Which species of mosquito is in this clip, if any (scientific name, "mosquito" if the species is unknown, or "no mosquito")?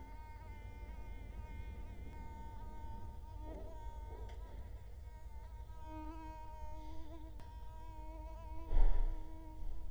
Culex quinquefasciatus